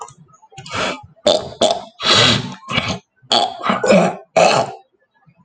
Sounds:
Throat clearing